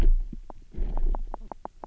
{"label": "biophony, knock croak", "recorder": "SoundTrap 300"}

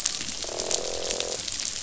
{"label": "biophony, croak", "recorder": "SoundTrap 500"}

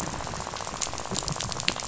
{"label": "biophony, rattle", "recorder": "SoundTrap 500"}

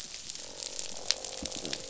{"label": "biophony", "recorder": "SoundTrap 500"}
{"label": "biophony, croak", "recorder": "SoundTrap 500"}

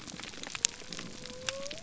{"label": "biophony", "recorder": "SoundTrap 300"}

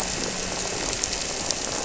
{"label": "anthrophony, boat engine", "recorder": "SoundTrap 300"}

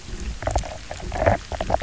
{"label": "biophony, knock croak", "recorder": "SoundTrap 300"}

